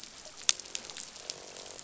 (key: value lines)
label: biophony, croak
recorder: SoundTrap 500